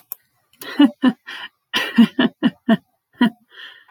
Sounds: Laughter